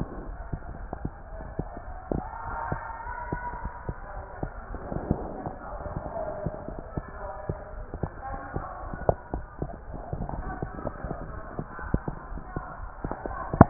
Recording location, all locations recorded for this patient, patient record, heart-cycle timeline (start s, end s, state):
aortic valve (AV)
aortic valve (AV)+pulmonary valve (PV)
#Age: Child
#Sex: Female
#Height: 132.0 cm
#Weight: 38.1 kg
#Pregnancy status: False
#Murmur: Absent
#Murmur locations: nan
#Most audible location: nan
#Systolic murmur timing: nan
#Systolic murmur shape: nan
#Systolic murmur grading: nan
#Systolic murmur pitch: nan
#Systolic murmur quality: nan
#Diastolic murmur timing: nan
#Diastolic murmur shape: nan
#Diastolic murmur grading: nan
#Diastolic murmur pitch: nan
#Diastolic murmur quality: nan
#Outcome: Normal
#Campaign: 2015 screening campaign
0.00	3.00	unannotated
3.00	3.14	S1
3.14	3.26	systole
3.26	3.40	S2
3.40	3.58	diastole
3.58	3.70	S1
3.70	3.85	systole
3.85	3.98	S2
3.98	4.13	diastole
4.13	4.26	S1
4.26	4.39	systole
4.39	4.52	S2
4.52	4.66	diastole
4.66	4.80	S1
4.80	4.90	systole
4.90	5.04	S2
5.04	5.18	diastole
5.18	5.30	S1
5.30	5.41	systole
5.41	5.54	S2
5.54	5.70	diastole
5.70	5.82	S1
5.82	5.92	systole
5.92	6.04	S2
6.04	6.18	diastole
6.18	6.30	S1
6.30	6.42	systole
6.42	6.54	S2
6.54	6.68	diastole
6.68	6.82	S1
6.82	6.93	systole
6.93	7.04	S2
7.04	7.18	diastole
7.18	7.30	S1
7.30	7.46	systole
7.46	7.60	S2
7.60	7.72	diastole
7.72	7.86	S1
7.86	8.00	systole
8.00	8.10	S2
8.10	8.28	diastole
8.28	8.40	S1
8.40	8.53	systole
8.53	8.66	S2
8.66	8.80	diastole
8.80	8.94	S1
8.94	13.70	unannotated